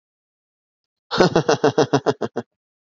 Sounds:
Laughter